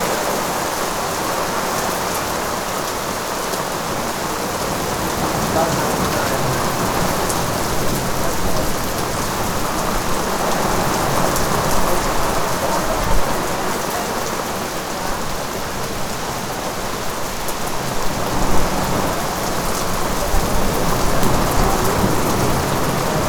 Are there several animals crying out?
no